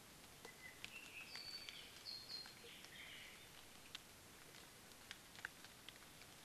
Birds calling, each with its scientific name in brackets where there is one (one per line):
Apapane (Himatione sanguinea)